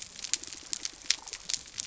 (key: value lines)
label: biophony
recorder: SoundTrap 300